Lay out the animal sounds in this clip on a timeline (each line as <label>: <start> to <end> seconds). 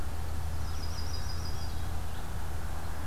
Red-eyed Vireo (Vireo olivaceus): 0.0 to 3.1 seconds
Yellow-rumped Warbler (Setophaga coronata): 0.5 to 1.8 seconds